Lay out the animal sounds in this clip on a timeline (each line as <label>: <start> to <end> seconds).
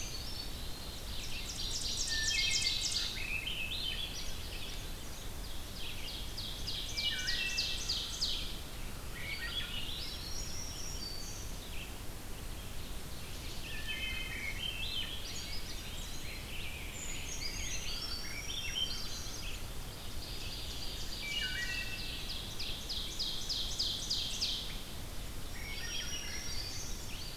Brown Creeper (Certhia americana): 0.0 to 0.8 seconds
Eastern Wood-Pewee (Contopus virens): 0.0 to 1.1 seconds
Red-eyed Vireo (Vireo olivaceus): 0.0 to 27.4 seconds
Ovenbird (Seiurus aurocapilla): 0.7 to 3.4 seconds
Wood Thrush (Hylocichla mustelina): 1.9 to 2.8 seconds
Swainson's Thrush (Catharus ustulatus): 2.8 to 5.2 seconds
Ovenbird (Seiurus aurocapilla): 5.2 to 8.8 seconds
Wood Thrush (Hylocichla mustelina): 6.8 to 8.1 seconds
Swainson's Thrush (Catharus ustulatus): 8.9 to 11.1 seconds
Black-throated Green Warbler (Setophaga virens): 9.9 to 11.6 seconds
Ovenbird (Seiurus aurocapilla): 12.4 to 14.9 seconds
Wood Thrush (Hylocichla mustelina): 13.6 to 14.7 seconds
Swainson's Thrush (Catharus ustulatus): 14.2 to 16.3 seconds
Eastern Wood-Pewee (Contopus virens): 15.2 to 16.6 seconds
Rose-breasted Grosbeak (Pheucticus ludovicianus): 15.7 to 19.0 seconds
Brown Creeper (Certhia americana): 16.6 to 18.4 seconds
Black-throated Green Warbler (Setophaga virens): 17.9 to 19.4 seconds
Swainson's Thrush (Catharus ustulatus): 18.1 to 20.0 seconds
Ovenbird (Seiurus aurocapilla): 19.7 to 24.7 seconds
Wood Thrush (Hylocichla mustelina): 21.1 to 22.3 seconds
Black-throated Green Warbler (Setophaga virens): 25.2 to 27.2 seconds
Swainson's Thrush (Catharus ustulatus): 25.5 to 27.2 seconds